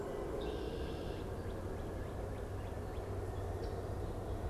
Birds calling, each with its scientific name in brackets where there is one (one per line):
Red-winged Blackbird (Agelaius phoeniceus)
Northern Cardinal (Cardinalis cardinalis)